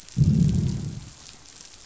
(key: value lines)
label: biophony, growl
recorder: SoundTrap 500